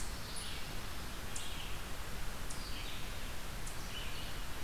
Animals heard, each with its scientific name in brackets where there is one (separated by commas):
Eastern Chipmunk (Tamias striatus), Pine Warbler (Setophaga pinus), Red-eyed Vireo (Vireo olivaceus)